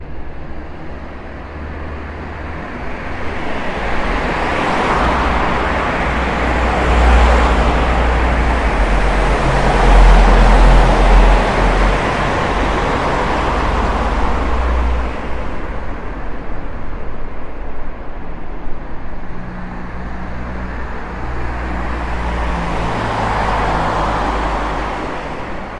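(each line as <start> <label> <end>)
0.1 Cars driving closely on a highway. 25.8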